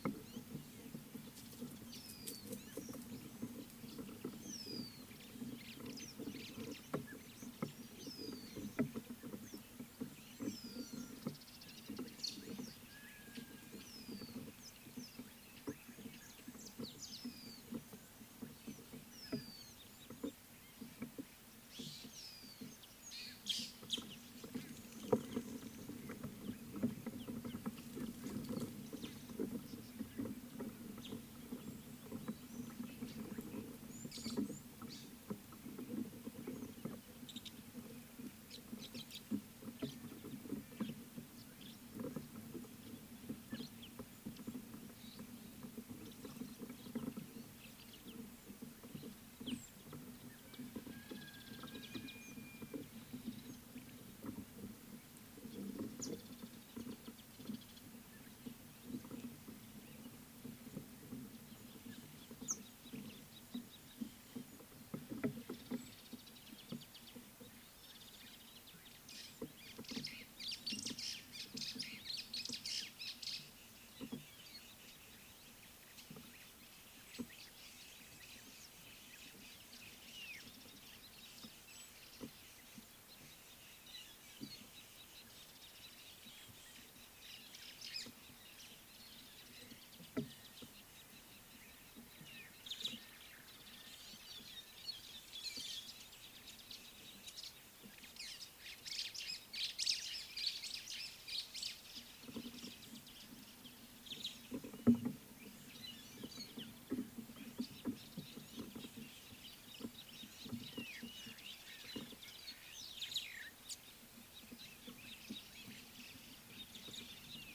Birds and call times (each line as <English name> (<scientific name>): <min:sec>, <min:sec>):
Rufous Chatterer (Argya rubiginosa): 0:04.7, 0:10.7, 0:14.1, 0:22.3
Rüppell's Starling (Lamprotornis purpuroptera): 0:12.3, 1:53.1
Scarlet-chested Sunbird (Chalcomitra senegalensis): 1:03.3
White-browed Sparrow-Weaver (Plocepasser mahali): 1:11.6, 1:39.9
White-headed Buffalo-Weaver (Dinemellia dinemelli): 1:35.0